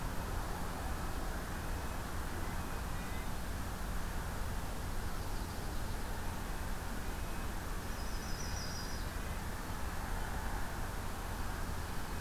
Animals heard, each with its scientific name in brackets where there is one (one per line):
Red-breasted Nuthatch (Sitta canadensis)
Yellow-rumped Warbler (Setophaga coronata)